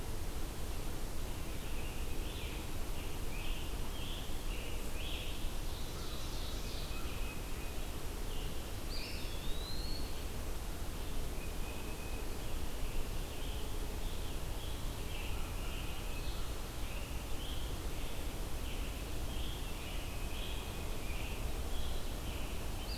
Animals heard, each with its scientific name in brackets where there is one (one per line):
Eastern Wood-Pewee (Contopus virens)
Scarlet Tanager (Piranga olivacea)
American Crow (Corvus brachyrhynchos)
Red-eyed Vireo (Vireo olivaceus)
Ovenbird (Seiurus aurocapilla)
Tufted Titmouse (Baeolophus bicolor)